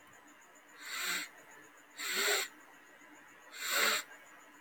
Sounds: Sniff